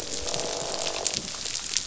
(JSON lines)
{"label": "biophony, croak", "recorder": "SoundTrap 500"}